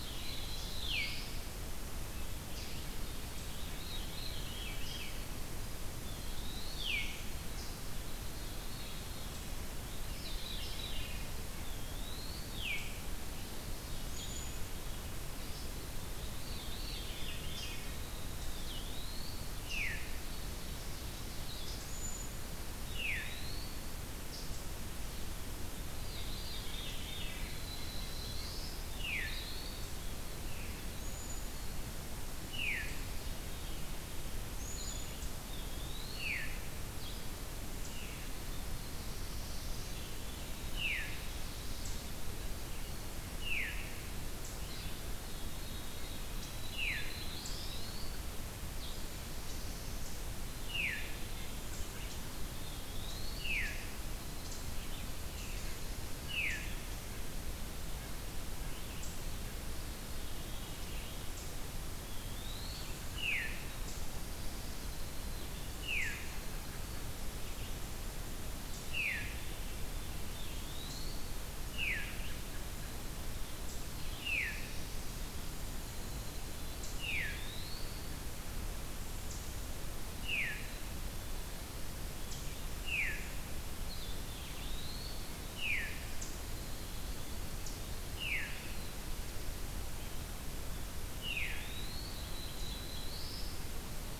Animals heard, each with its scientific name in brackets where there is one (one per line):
Winter Wren (Troglodytes hiemalis)
Black-throated Blue Warbler (Setophaga caerulescens)
White-breasted Nuthatch (Sitta carolinensis)
Ovenbird (Seiurus aurocapilla)
Black-capped Chickadee (Poecile atricapillus)
Veery (Catharus fuscescens)
Blue-headed Vireo (Vireo solitarius)
Eastern Wood-Pewee (Contopus virens)